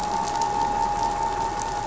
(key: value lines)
label: anthrophony, boat engine
recorder: SoundTrap 500